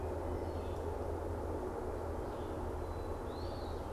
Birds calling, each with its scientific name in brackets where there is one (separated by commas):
Red-eyed Vireo (Vireo olivaceus), Eastern Wood-Pewee (Contopus virens)